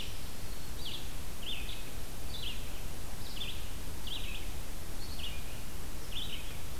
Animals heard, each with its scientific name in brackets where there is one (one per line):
Red-eyed Vireo (Vireo olivaceus)